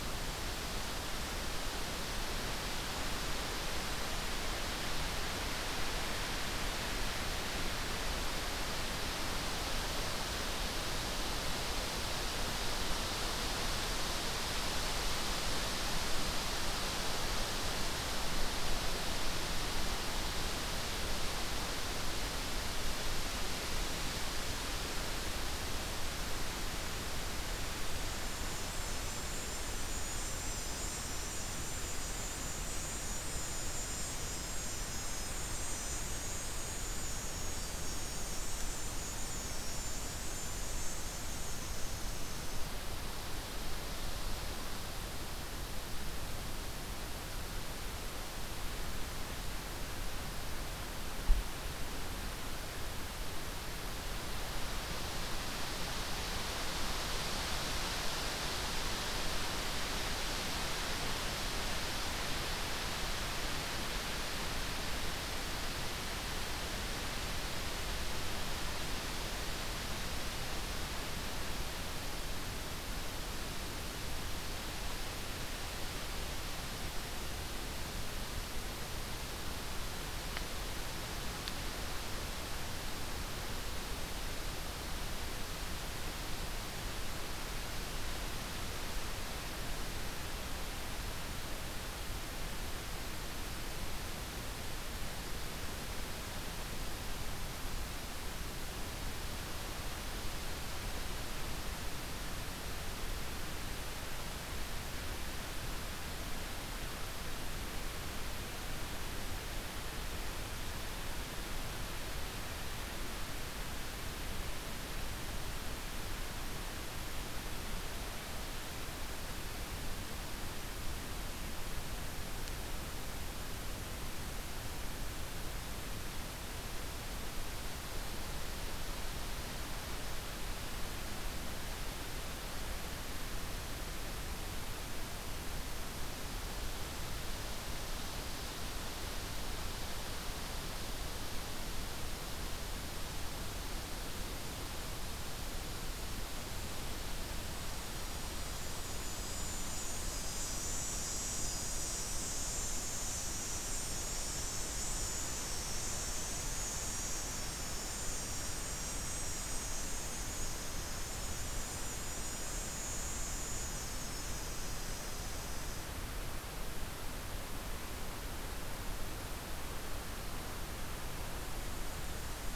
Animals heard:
forest ambience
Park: Katahdin Woods and Waters National Monument